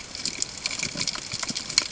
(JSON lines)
{"label": "ambient", "recorder": "HydroMoth"}